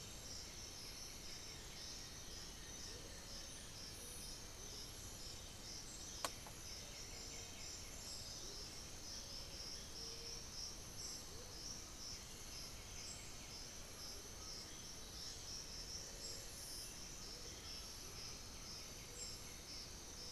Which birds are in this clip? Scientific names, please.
Pachyramphus polychopterus, Momotus momota, Piprites chloris, Patagioenas plumbea, Turdus ignobilis, unidentified bird, Crypturellus undulatus